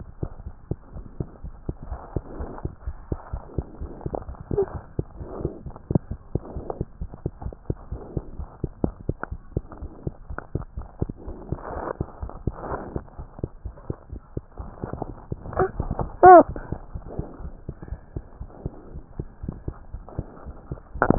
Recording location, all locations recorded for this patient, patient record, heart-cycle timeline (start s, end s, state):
pulmonary valve (PV)
aortic valve (AV)+pulmonary valve (PV)+tricuspid valve (TV)+mitral valve (MV)
#Age: Infant
#Sex: Male
#Height: 80.0 cm
#Weight: 10.9 kg
#Pregnancy status: False
#Murmur: Absent
#Murmur locations: nan
#Most audible location: nan
#Systolic murmur timing: nan
#Systolic murmur shape: nan
#Systolic murmur grading: nan
#Systolic murmur pitch: nan
#Systolic murmur quality: nan
#Diastolic murmur timing: nan
#Diastolic murmur shape: nan
#Diastolic murmur grading: nan
#Diastolic murmur pitch: nan
#Diastolic murmur quality: nan
#Outcome: Normal
#Campaign: 2015 screening campaign
0.00	12.16	unannotated
12.16	12.27	S1
12.27	12.43	systole
12.43	12.55	S2
12.55	12.68	diastole
12.68	12.79	S1
12.79	12.94	systole
12.94	13.04	S2
13.04	13.15	diastole
13.15	13.26	S1
13.26	13.38	systole
13.38	13.52	S2
13.52	13.64	diastole
13.64	13.72	S1
13.72	13.88	systole
13.88	13.98	S2
13.98	14.12	diastole
14.12	14.22	S1
14.22	14.32	systole
14.32	14.43	S2
14.43	14.58	diastole
14.58	14.72	S1
14.72	14.82	systole
14.82	14.92	S2
14.92	15.04	diastole
15.04	15.17	S1
15.17	15.30	systole
15.30	15.39	S2
15.39	15.49	diastole
15.49	21.18	unannotated